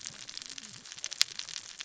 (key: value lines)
label: biophony, cascading saw
recorder: SoundTrap 600 or HydroMoth